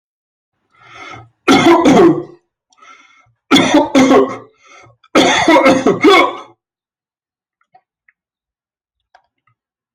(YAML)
expert_labels:
- quality: poor
  cough_type: dry
  dyspnea: false
  wheezing: false
  stridor: false
  choking: false
  congestion: false
  nothing: true
  diagnosis: healthy cough
  severity: pseudocough/healthy cough
age: 53
gender: male
respiratory_condition: false
fever_muscle_pain: false
status: healthy